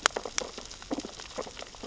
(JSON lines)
{"label": "biophony, sea urchins (Echinidae)", "recorder": "SoundTrap 600 or HydroMoth"}